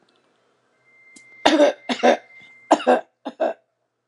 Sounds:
Cough